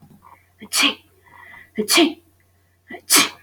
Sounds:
Sneeze